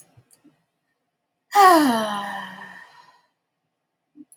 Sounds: Sigh